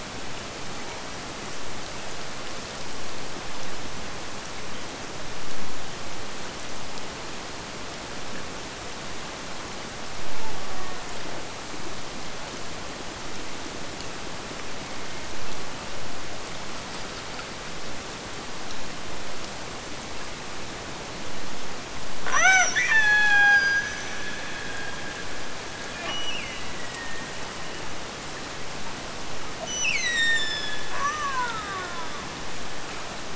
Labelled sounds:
10.4	11.3	killer whale, Bigg's (transient), Gulf of Alaska transient, 0.34 to 2.1 kHz
22.2	27.8	killer whale, Bigg's (transient), Gulf of Alaska transient, 0.29 to 8.0 kHz
29.6	32.4	killer whale, Bigg's (transient), Gulf of Alaska transient, 0.28 to 8.0 kHz

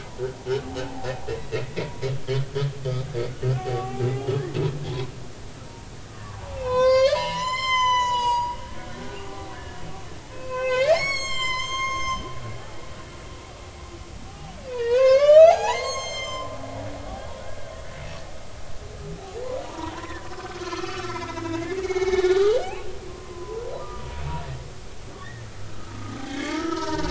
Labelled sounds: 1.4	2.0	humpback whale, 1.8 to 2.3 kHz
2.9	3.1	humpback whale, 1.1 to 1.3 kHz
3.6	4.0	humpback whale, 0.80 to 1.2 kHz
6.1	9.8	humpback whale, 0.80 to 8.0 kHz
10.3	12.8	humpback whale, 0.80 to 7.8 kHz
14.3	16.5	humpback whale, 0.80 to 7.6 kHz
17.2	17.5	humpback whale, 3.2 to 3.5 kHz
19.6	24.0	humpback whale, 0.80 to 6.1 kHz
25.6	27.0	humpback whale, 0.86 to 3.5 kHz

